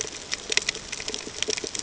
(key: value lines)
label: ambient
recorder: HydroMoth